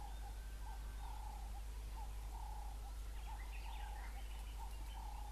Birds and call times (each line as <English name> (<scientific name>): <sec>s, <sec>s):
Ring-necked Dove (Streptopelia capicola): 2.5s